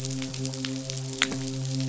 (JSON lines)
{"label": "biophony, midshipman", "recorder": "SoundTrap 500"}